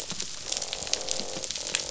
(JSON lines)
{"label": "biophony, croak", "recorder": "SoundTrap 500"}